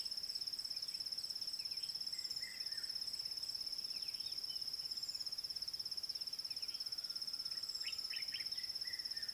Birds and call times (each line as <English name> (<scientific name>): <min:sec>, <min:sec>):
Red-chested Cuckoo (Cuculus solitarius): 0:02.5
Common Bulbul (Pycnonotus barbatus): 0:08.2